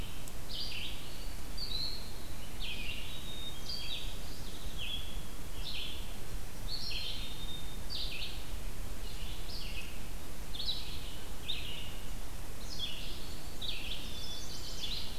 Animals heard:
Red-eyed Vireo (Vireo olivaceus), Black-capped Chickadee (Poecile atricapillus), Chestnut-sided Warbler (Setophaga pensylvanica)

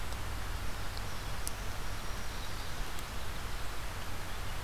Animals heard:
Black-throated Blue Warbler (Setophaga caerulescens), Black-throated Green Warbler (Setophaga virens)

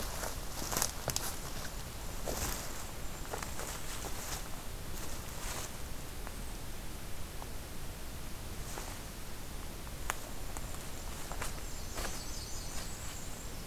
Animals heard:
Blackburnian Warbler (Setophaga fusca), Golden-crowned Kinglet (Regulus satrapa)

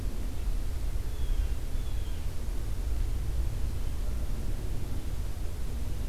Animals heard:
Blue Jay (Cyanocitta cristata)

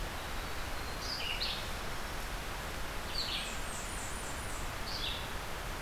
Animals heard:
Red-eyed Vireo (Vireo olivaceus), Blackburnian Warbler (Setophaga fusca)

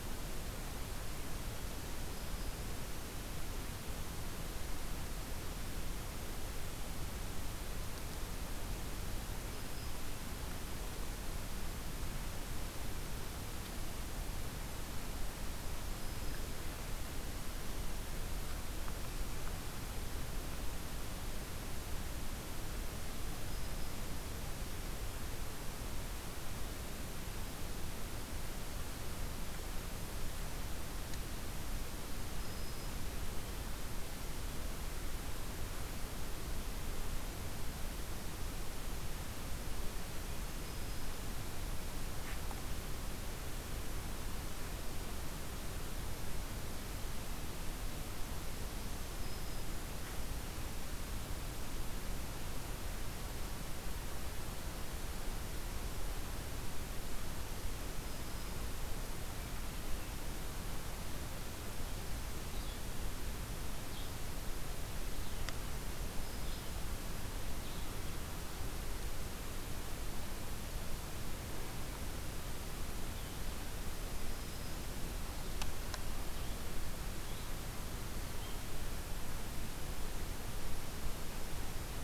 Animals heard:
Red-eyed Vireo (Vireo olivaceus), Black-throated Green Warbler (Setophaga virens)

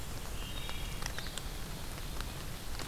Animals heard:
Blue-headed Vireo (Vireo solitarius), Wood Thrush (Hylocichla mustelina)

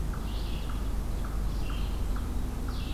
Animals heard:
Eastern Chipmunk (Tamias striatus), Red-eyed Vireo (Vireo olivaceus)

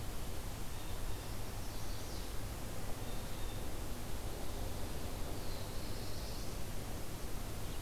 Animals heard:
Black-throated Blue Warbler (Setophaga caerulescens), Chestnut-sided Warbler (Setophaga pensylvanica), Blue Jay (Cyanocitta cristata)

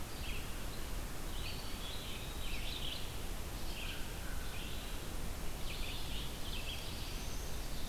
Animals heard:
Black-throated Blue Warbler (Setophaga caerulescens), Eastern Wood-Pewee (Contopus virens), American Crow (Corvus brachyrhynchos), Red-eyed Vireo (Vireo olivaceus)

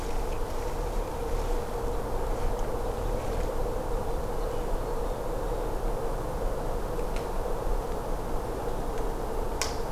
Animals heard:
Hermit Thrush (Catharus guttatus)

